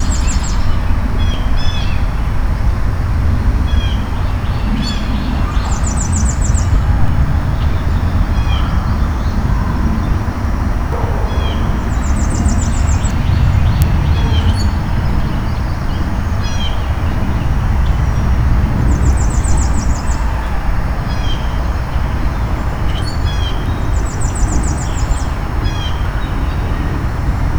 Is this in nature?
yes